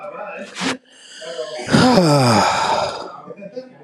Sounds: Sigh